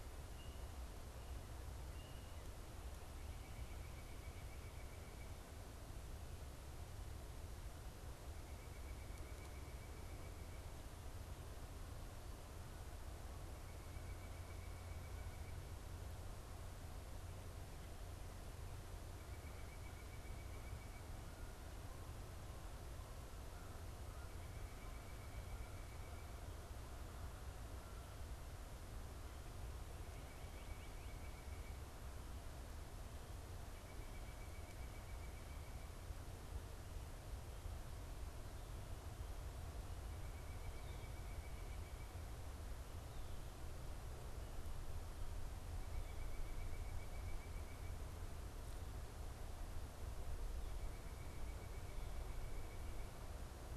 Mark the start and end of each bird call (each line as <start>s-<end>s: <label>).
3.2s-5.5s: White-breasted Nuthatch (Sitta carolinensis)
8.3s-10.6s: White-breasted Nuthatch (Sitta carolinensis)
13.5s-15.6s: White-breasted Nuthatch (Sitta carolinensis)
19.0s-21.1s: White-breasted Nuthatch (Sitta carolinensis)
30.1s-31.9s: White-breasted Nuthatch (Sitta carolinensis)
30.2s-31.3s: Northern Cardinal (Cardinalis cardinalis)
33.6s-35.9s: White-breasted Nuthatch (Sitta carolinensis)
40.0s-42.2s: White-breasted Nuthatch (Sitta carolinensis)
45.7s-48.0s: White-breasted Nuthatch (Sitta carolinensis)
50.5s-53.2s: White-breasted Nuthatch (Sitta carolinensis)